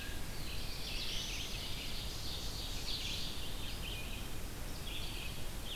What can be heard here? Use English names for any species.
Red-eyed Vireo, Black-throated Blue Warbler, Ovenbird